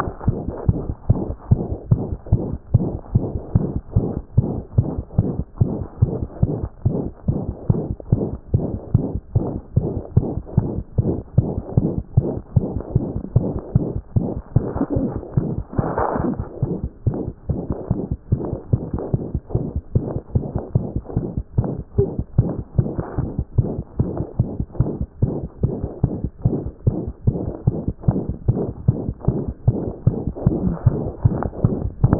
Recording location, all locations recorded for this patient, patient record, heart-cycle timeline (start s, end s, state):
mitral valve (MV)
aortic valve (AV)+mitral valve (MV)
#Age: Infant
#Sex: Male
#Height: 61.0 cm
#Weight: 4.3 kg
#Pregnancy status: False
#Murmur: Present
#Murmur locations: aortic valve (AV)+mitral valve (MV)
#Most audible location: aortic valve (AV)
#Systolic murmur timing: Holosystolic
#Systolic murmur shape: Decrescendo
#Systolic murmur grading: I/VI
#Systolic murmur pitch: High
#Systolic murmur quality: Harsh
#Diastolic murmur timing: nan
#Diastolic murmur shape: nan
#Diastolic murmur grading: nan
#Diastolic murmur pitch: nan
#Diastolic murmur quality: nan
#Outcome: Abnormal
#Campaign: 2014 screening campaign
0.00	0.19	unannotated
0.19	0.26	diastole
0.26	0.38	S1
0.38	0.46	systole
0.46	0.52	S2
0.52	0.68	diastole
0.68	0.78	S1
0.78	0.86	systole
0.86	0.94	S2
0.94	1.08	diastole
1.08	1.20	S1
1.20	1.28	systole
1.28	1.36	S2
1.36	1.50	diastole
1.50	1.62	S1
1.62	1.70	systole
1.70	1.76	S2
1.76	1.90	diastole
1.90	2.02	S1
2.02	2.10	systole
2.10	2.18	S2
2.18	2.32	diastole
2.32	2.42	S1
2.42	2.50	systole
2.50	2.58	S2
2.58	2.74	diastole
2.74	2.88	S1
2.88	2.92	systole
2.92	2.98	S2
2.98	3.14	diastole
3.14	3.26	S1
3.26	3.34	systole
3.34	3.38	S2
3.38	3.54	diastole
3.54	3.68	S1
3.68	3.74	systole
3.74	3.80	S2
3.80	3.96	diastole
3.96	4.08	S1
4.08	4.14	systole
4.14	4.22	S2
4.22	4.36	diastole
4.36	4.48	S1
4.48	4.54	systole
4.54	4.62	S2
4.62	4.76	diastole
4.76	4.88	S1
4.88	4.96	systole
4.96	5.04	S2
5.04	5.18	diastole
5.18	5.30	S1
5.30	5.36	systole
5.36	5.44	S2
5.44	5.60	diastole
5.60	5.72	S1
5.72	5.78	systole
5.78	5.86	S2
5.86	6.02	diastole
6.02	6.12	S1
6.12	6.20	systole
6.20	6.28	S2
6.28	6.42	diastole
6.42	6.54	S1
6.54	6.62	systole
6.62	6.68	S2
6.68	6.86	diastole
6.86	6.98	S1
6.98	7.04	systole
7.04	7.10	S2
7.10	7.28	diastole
7.28	7.40	S1
7.40	7.46	systole
7.46	7.54	S2
7.54	7.70	diastole
7.70	7.82	S1
7.82	7.88	systole
7.88	7.96	S2
7.96	8.12	diastole
8.12	8.24	S1
8.24	8.30	systole
8.30	8.38	S2
8.38	8.54	diastole
8.54	8.66	S1
8.66	8.72	systole
8.72	8.78	S2
8.78	8.94	diastole
8.94	9.06	S1
9.06	9.14	systole
9.14	9.20	S2
9.20	9.34	diastole
9.34	9.46	S1
9.46	9.54	systole
9.54	9.60	S2
9.60	9.76	diastole
9.76	9.88	S1
9.88	9.94	systole
9.94	10.02	S2
10.02	10.16	diastole
10.16	10.28	S1
10.28	10.38	systole
10.38	10.42	S2
10.42	10.58	diastole
10.58	10.68	S1
10.68	10.76	systole
10.76	10.82	S2
10.82	10.96	diastole
10.96	32.19	unannotated